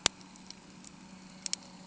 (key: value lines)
label: anthrophony, boat engine
recorder: HydroMoth